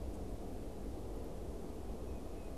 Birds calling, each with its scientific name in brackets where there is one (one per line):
Tufted Titmouse (Baeolophus bicolor)